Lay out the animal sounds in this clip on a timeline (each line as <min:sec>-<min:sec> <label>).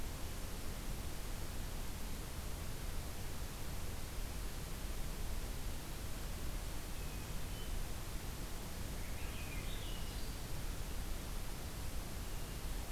0:06.9-0:07.9 Hermit Thrush (Catharus guttatus)
0:08.8-0:10.6 Swainson's Thrush (Catharus ustulatus)
0:12.1-0:12.6 Hermit Thrush (Catharus guttatus)